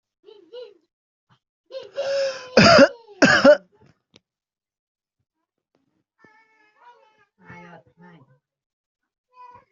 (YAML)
expert_labels:
- quality: poor
  cough_type: dry
  dyspnea: false
  wheezing: false
  stridor: false
  choking: false
  congestion: false
  nothing: true
  diagnosis: obstructive lung disease
  severity: unknown
age: 31
gender: female
respiratory_condition: true
fever_muscle_pain: true
status: COVID-19